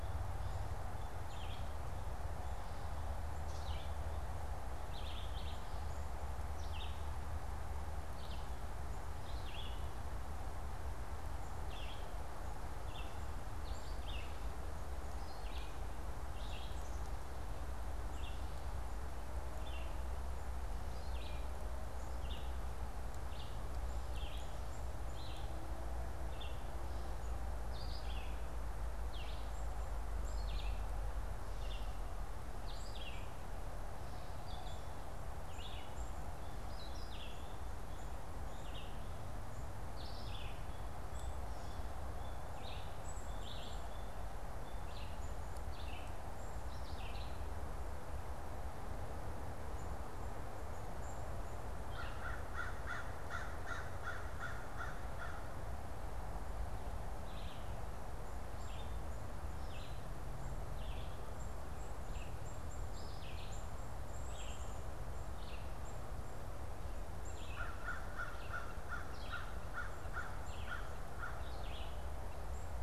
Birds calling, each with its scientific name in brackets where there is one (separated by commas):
Black-capped Chickadee (Poecile atricapillus), Red-eyed Vireo (Vireo olivaceus), American Crow (Corvus brachyrhynchos)